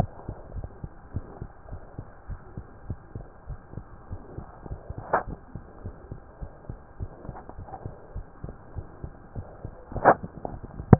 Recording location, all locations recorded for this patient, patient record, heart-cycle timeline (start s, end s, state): tricuspid valve (TV)
aortic valve (AV)+pulmonary valve (PV)+tricuspid valve (TV)+mitral valve (MV)
#Age: Child
#Sex: Male
#Height: 94.0 cm
#Weight: 13.5 kg
#Pregnancy status: False
#Murmur: Absent
#Murmur locations: nan
#Most audible location: nan
#Systolic murmur timing: nan
#Systolic murmur shape: nan
#Systolic murmur grading: nan
#Systolic murmur pitch: nan
#Systolic murmur quality: nan
#Diastolic murmur timing: nan
#Diastolic murmur shape: nan
#Diastolic murmur grading: nan
#Diastolic murmur pitch: nan
#Diastolic murmur quality: nan
#Outcome: Normal
#Campaign: 2015 screening campaign
0.00	0.52	unannotated
0.52	0.66	S1
0.66	0.81	systole
0.81	0.90	S2
0.90	1.12	diastole
1.12	1.26	S1
1.26	1.39	systole
1.39	1.48	S2
1.48	1.69	diastole
1.69	1.80	S1
1.80	1.96	systole
1.96	2.06	S2
2.06	2.27	diastole
2.27	2.40	S1
2.40	2.55	systole
2.55	2.66	S2
2.66	2.88	diastole
2.88	3.00	S1
3.00	3.14	systole
3.14	3.26	S2
3.26	3.47	diastole
3.47	3.58	S1
3.58	3.73	systole
3.73	3.84	S2
3.84	4.10	diastole
4.10	4.22	S1
4.22	4.35	systole
4.35	4.46	S2
4.46	4.70	diastole
4.70	4.80	S1
4.80	4.96	systole
4.96	5.04	S2
5.04	5.26	diastole
5.26	5.38	S1
5.38	5.54	systole
5.54	5.62	S2
5.62	5.84	diastole
5.84	5.94	S1
5.94	6.09	systole
6.09	6.20	S2
6.20	6.39	diastole
6.39	6.52	S1
6.52	6.66	systole
6.66	6.78	S2
6.78	7.00	diastole
7.00	7.10	S1
7.10	7.26	systole
7.26	7.36	S2
7.36	7.57	diastole
7.57	7.68	S1
7.68	10.99	unannotated